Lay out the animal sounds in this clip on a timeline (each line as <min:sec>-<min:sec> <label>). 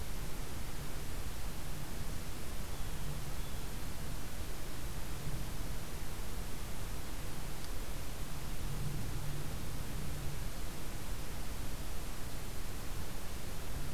0:02.5-0:03.7 Blue Jay (Cyanocitta cristata)